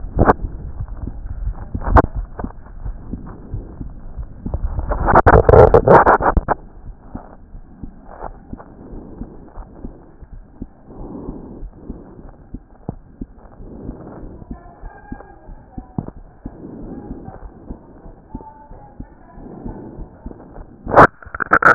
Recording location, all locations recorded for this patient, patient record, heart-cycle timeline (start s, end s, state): aortic valve (AV)
aortic valve (AV)+pulmonary valve (PV)+tricuspid valve (TV)+mitral valve (MV)
#Age: Child
#Sex: Female
#Height: 109.0 cm
#Weight: 19.0 kg
#Pregnancy status: False
#Murmur: Present
#Murmur locations: mitral valve (MV)+pulmonary valve (PV)+tricuspid valve (TV)
#Most audible location: tricuspid valve (TV)
#Systolic murmur timing: Holosystolic
#Systolic murmur shape: Plateau
#Systolic murmur grading: I/VI
#Systolic murmur pitch: Low
#Systolic murmur quality: Harsh
#Diastolic murmur timing: nan
#Diastolic murmur shape: nan
#Diastolic murmur grading: nan
#Diastolic murmur pitch: nan
#Diastolic murmur quality: nan
#Outcome: Abnormal
#Campaign: 2014 screening campaign
0.00	6.63	unannotated
6.63	6.84	diastole
6.84	6.96	S1
6.96	7.14	systole
7.14	7.22	S2
7.22	7.54	diastole
7.54	7.62	S1
7.62	7.82	systole
7.82	7.90	S2
7.90	8.24	diastole
8.24	8.34	S1
8.34	8.52	systole
8.52	8.60	S2
8.60	8.92	diastole
8.92	9.02	S1
9.02	9.18	systole
9.18	9.28	S2
9.28	9.58	diastole
9.58	9.66	S1
9.66	9.84	systole
9.84	9.92	S2
9.92	10.34	diastole
10.34	10.44	S1
10.44	10.60	systole
10.60	10.68	S2
10.68	11.00	diastole
11.00	11.10	S1
11.10	11.28	systole
11.28	11.38	S2
11.38	11.60	diastole
11.60	11.70	S1
11.70	11.88	systole
11.88	11.98	S2
11.98	12.23	diastole
12.23	12.34	S1
12.34	12.53	systole
12.53	12.62	S2
12.62	12.87	diastole
12.87	12.97	S1
12.97	13.20	systole
13.20	13.28	S2
13.28	13.58	diastole
13.58	21.74	unannotated